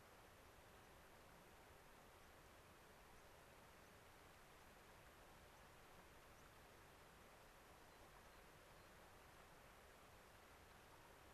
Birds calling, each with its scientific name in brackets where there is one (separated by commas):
American Pipit (Anthus rubescens), White-crowned Sparrow (Zonotrichia leucophrys)